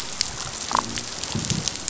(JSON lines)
{"label": "biophony", "recorder": "SoundTrap 500"}
{"label": "biophony, damselfish", "recorder": "SoundTrap 500"}